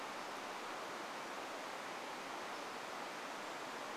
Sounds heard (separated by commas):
Brown Creeper call, unidentified sound